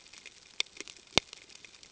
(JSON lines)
{"label": "ambient", "recorder": "HydroMoth"}